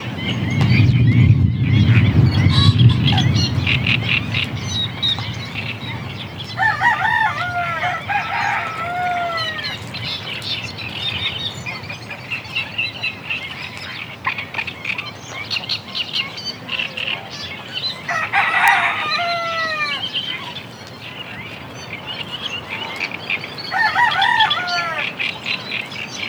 What is crowing?
rooster